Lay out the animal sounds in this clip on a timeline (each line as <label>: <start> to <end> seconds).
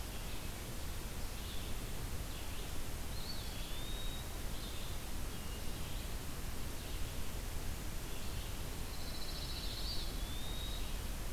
Red-eyed Vireo (Vireo olivaceus): 0.0 to 11.3 seconds
Eastern Wood-Pewee (Contopus virens): 3.0 to 4.4 seconds
Pine Warbler (Setophaga pinus): 8.8 to 10.1 seconds
Eastern Wood-Pewee (Contopus virens): 9.8 to 10.9 seconds